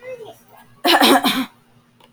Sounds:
Throat clearing